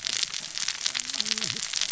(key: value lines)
label: biophony, cascading saw
recorder: SoundTrap 600 or HydroMoth